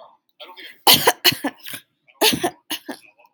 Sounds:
Cough